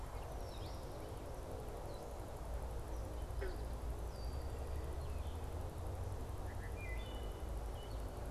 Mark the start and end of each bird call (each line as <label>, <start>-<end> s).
Red-winged Blackbird (Agelaius phoeniceus), 0.3-0.9 s
Red-winged Blackbird (Agelaius phoeniceus), 4.0-4.6 s
Wood Thrush (Hylocichla mustelina), 6.4-7.5 s